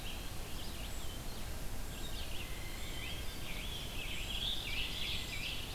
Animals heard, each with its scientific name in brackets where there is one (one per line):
Ovenbird (Seiurus aurocapilla)
Red-eyed Vireo (Vireo olivaceus)
unidentified call
Scarlet Tanager (Piranga olivacea)